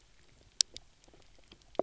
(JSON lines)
{"label": "biophony, knock croak", "recorder": "SoundTrap 300"}